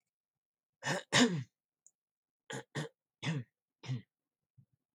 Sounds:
Throat clearing